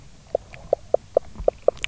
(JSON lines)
{"label": "biophony, knock croak", "recorder": "SoundTrap 300"}